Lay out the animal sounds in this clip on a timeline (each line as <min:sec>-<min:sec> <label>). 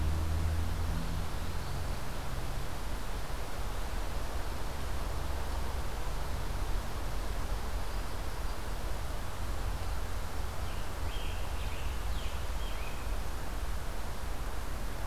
0:00.8-0:01.9 Eastern Wood-Pewee (Contopus virens)
0:10.6-0:13.3 Scarlet Tanager (Piranga olivacea)